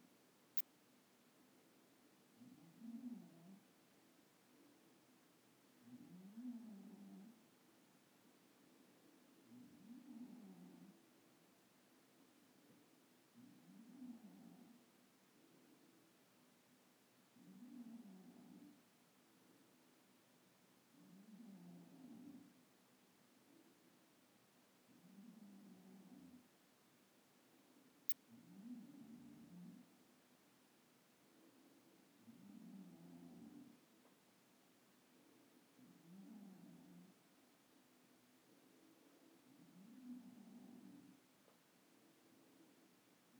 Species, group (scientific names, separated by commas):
Odontura aspericauda, Orthoptera